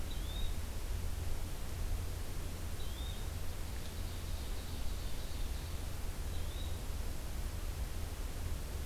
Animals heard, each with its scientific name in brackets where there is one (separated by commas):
Ovenbird (Seiurus aurocapilla), Yellow-bellied Flycatcher (Empidonax flaviventris)